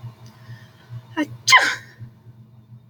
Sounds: Sneeze